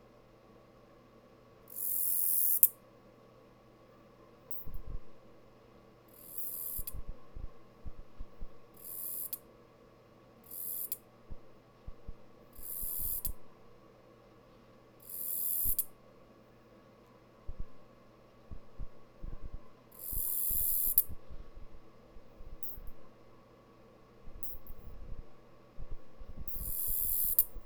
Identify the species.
Acrometopa servillea